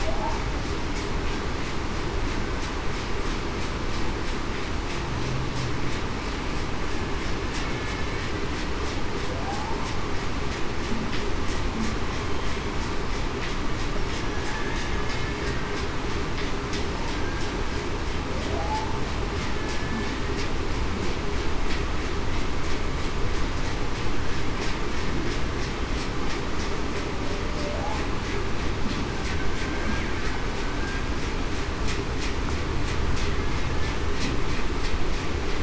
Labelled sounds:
9.4	9.8	humpback whale, 0.73 to 0.91 kHz
19.6	20.1	killer whale, Bigg's (transient), 1.7 to 1.8 kHz

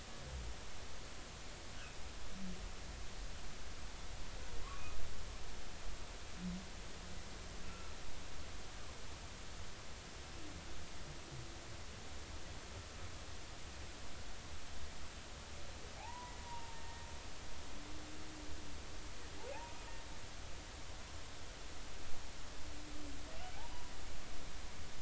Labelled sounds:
7.6	8.0	humpback whale, 1.3 to 1.4 kHz
16.0	17.1	humpback whale, 0.80 to 1.9 kHz
19.5	19.8	humpback whale, 0.80 to 0.99 kHz
23.4	23.8	humpback whale, 0.80 to 1.6 kHz

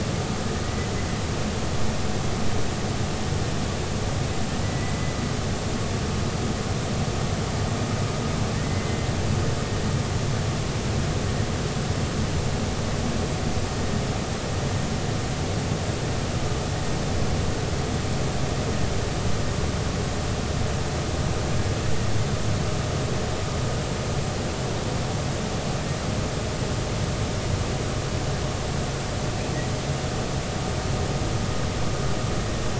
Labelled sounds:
0.6	0.9	humpback whale, 1.9 to 2.0 kHz
4.6	5.1	humpback whale, 1.9 to 2.1 kHz
8.6	9.1	humpback whale, 2.0 to 2.1 kHz

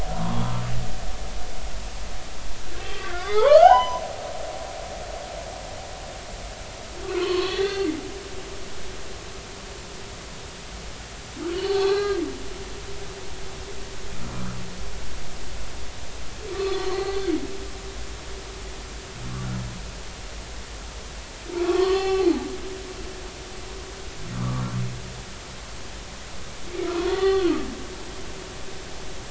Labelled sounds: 0.1	0.6	humpback whale, 0.90 to 3.4 kHz
2.9	4.0	humpback whale, 0.80 to 6.1 kHz
7.0	7.9	humpback whale, 0.93 to 4.5 kHz
11.5	12.2	humpback whale, 0.80 to 4.6 kHz
16.5	17.3	humpback whale, 1.0 to 4.4 kHz
21.6	22.3	humpback whale, 0.80 to 4.5 kHz
24.4	24.6	humpback whale, 0.99 to 1.3 kHz
26.8	27.6	humpback whale, 0.80 to 3.6 kHz

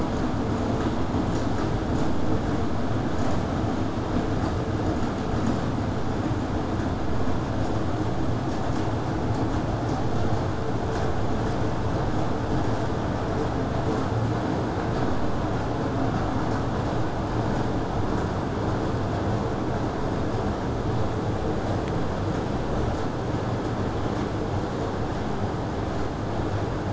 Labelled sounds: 25.9	26.9	vessel noise, 0 to 8.0 kHz

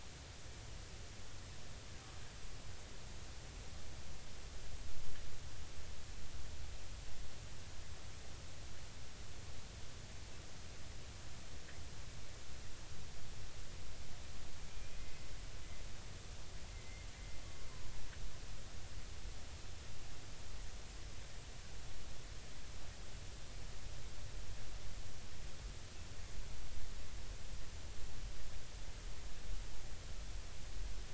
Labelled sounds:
14.7	15.3	killer whale, Bigg's (transient), 2.0 to 2.5 kHz
16.7	17.1	killer whale, Bigg's (transient), 2.0 to 2.2 kHz

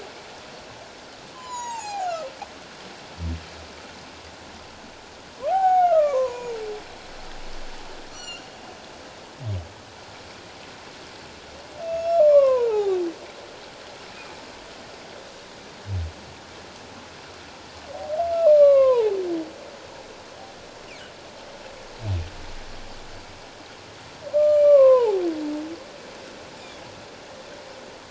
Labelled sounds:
1.3	2.1	humpback whale, 0.78 to 7.2 kHz
5.5	6.6	humpback whale, 0.78 to 7.0 kHz
8.1	8.4	humpback whale, 2.7 to 7.3 kHz
11.8	13.0	humpback whale, 0.78 to 5.5 kHz
18.5	19.2	humpback whale, 0.78 to 4.2 kHz
24.3	25.2	humpback whale, 0.78 to 7.2 kHz

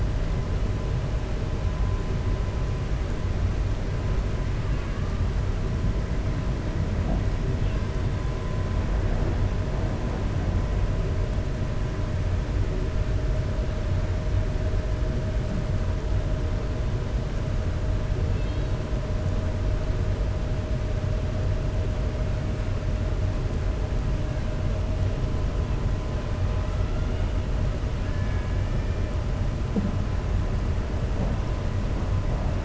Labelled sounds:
18.3	18.7	killer whale, 2.1 to 4.4 kHz

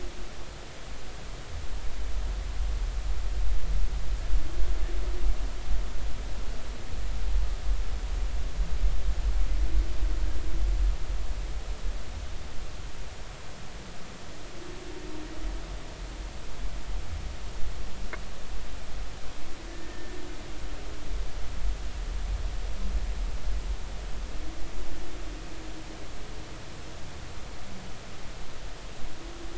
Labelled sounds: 19.7	20.2	humpback whale, 1.7 to 1.9 kHz

